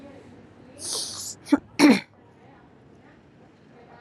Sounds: Throat clearing